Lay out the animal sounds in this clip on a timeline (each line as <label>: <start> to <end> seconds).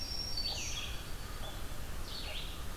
Black-throated Green Warbler (Setophaga virens): 0.0 to 1.0 seconds
Blue-headed Vireo (Vireo solitarius): 0.0 to 2.8 seconds